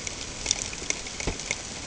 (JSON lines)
{"label": "ambient", "recorder": "HydroMoth"}